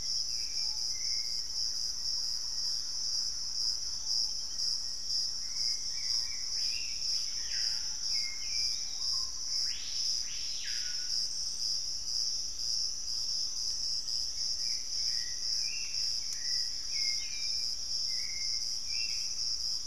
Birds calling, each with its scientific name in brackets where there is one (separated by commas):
Hauxwell's Thrush (Turdus hauxwelli), Thrush-like Wren (Campylorhynchus turdinus), Piratic Flycatcher (Legatus leucophaius), Wing-barred Piprites (Piprites chloris), Screaming Piha (Lipaugus vociferans), Gray Antbird (Cercomacra cinerascens)